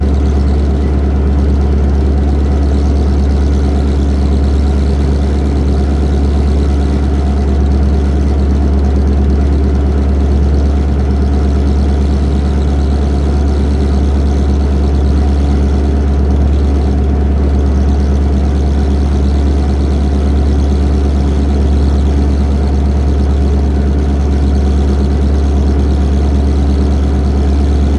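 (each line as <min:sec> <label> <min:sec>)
0:00.0 Constant distant engine noise from a sailboat below deck. 0:28.0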